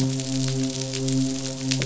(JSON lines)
{"label": "biophony, midshipman", "recorder": "SoundTrap 500"}